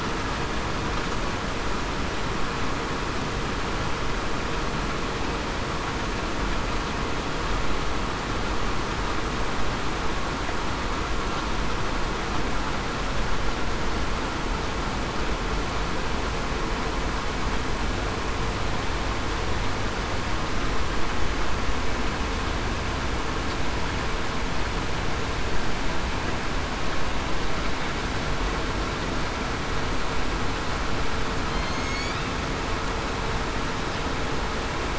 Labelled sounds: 31.5	31.8	killer whale, southern resident, 4.1 to 4.3 kHz

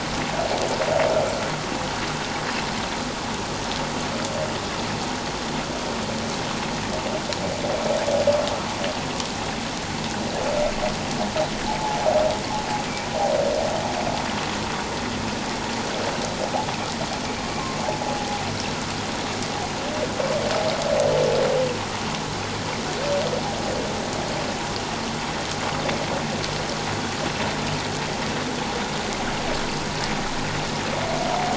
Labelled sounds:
11.7	12.0	humpback whale, 0.78 to 0.94 kHz

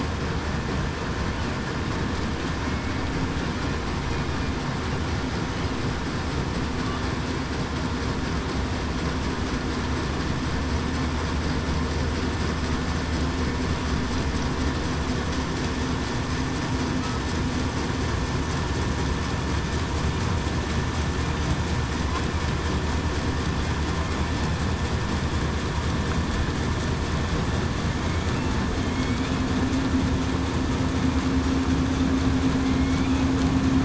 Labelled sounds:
32.6	33.0	killer whale, southern resident, 2.1 to 2.2 kHz

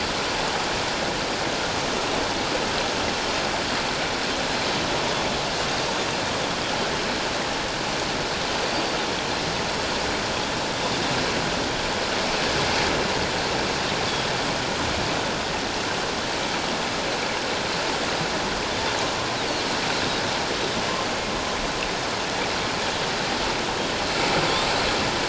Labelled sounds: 8.6	9.0	Pacific white-sided dolphin, 4.5 to 4.7 kHz

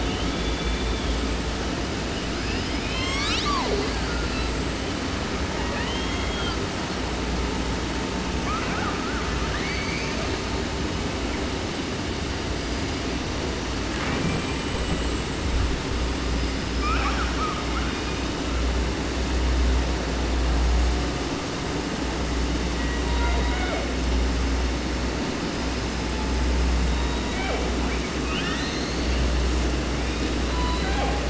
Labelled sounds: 0.0	1.4	killer whale, southern resident, 0.30 to 3.8 kHz
2.1	4.0	killer whale, southern resident, 0.30 to 8.0 kHz
4.0	5.0	killer whale, 0.96 to 8.0 kHz
5.5	7.0	killer whale, southern resident, J pod, call S44, 0.30 to 7.0 kHz
8.4	10.6	killer whale, 0.30 to 7.0 kHz
11.9	13.1	killer whale, 2.2 to 8.0 kHz
13.8	15.3	killer whale, 0.30 to 8.0 kHz
15.8	18.7	killer whale, 0.30 to 8.0 kHz
22.7	24.0	killer whale, 0.27 to 4.4 kHz
26.8	29.4	killer whale, 0.27 to 6.8 kHz
29.9	31.2	killer whale, 0.48 to 5.7 kHz

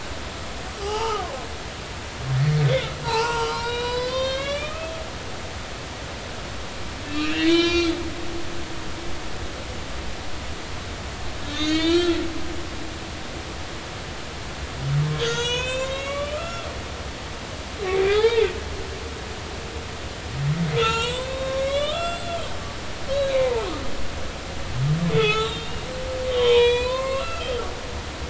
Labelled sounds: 0.8	1.2	humpback whale, 0.80 to 3.0 kHz
2.3	4.9	humpback whale, 0.80 to 8.0 kHz
7.0	7.9	humpback whale, 0.99 to 6.6 kHz
11.4	12.2	humpback whale, 1.3 to 7.8 kHz
15.1	16.7	humpback whale, 0.90 to 8.0 kHz
18.1	18.5	humpback whale, 0.80 to 4.3 kHz
20.7	23.7	humpback whale, 0.83 to 7.9 kHz
25.2	25.8	humpback whale, 0.80 to 4.0 kHz
26.1	27.5	humpback whale, 0.83 to 7.7 kHz

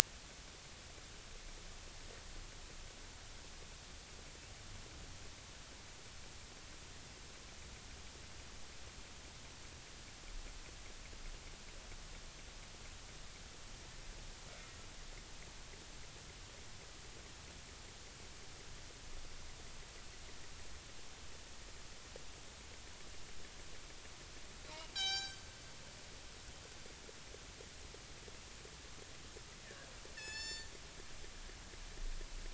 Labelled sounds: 24.9	25.4	killer whale, northern resident, G clan, call N24ii, 0.80 to 7.9 kHz
29.6	30.7	killer whale, northern resident, G clan, call N24ii, 0.83 to 7.2 kHz

